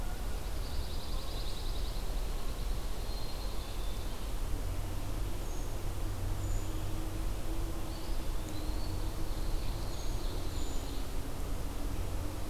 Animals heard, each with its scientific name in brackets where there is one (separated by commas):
Black-capped Chickadee (Poecile atricapillus), Eastern Wood-Pewee (Contopus virens), Brown Creeper (Certhia americana), Ovenbird (Seiurus aurocapilla), Pine Warbler (Setophaga pinus)